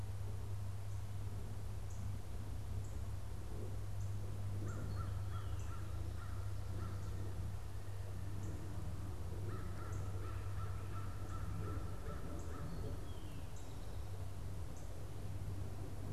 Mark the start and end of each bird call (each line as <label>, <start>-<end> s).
American Crow (Corvus brachyrhynchos), 4.6-13.2 s
Eastern Towhee (Pipilo erythrophthalmus), 12.6-14.3 s